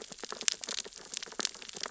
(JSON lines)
{"label": "biophony, sea urchins (Echinidae)", "recorder": "SoundTrap 600 or HydroMoth"}